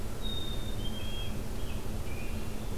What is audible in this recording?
Black-capped Chickadee, American Robin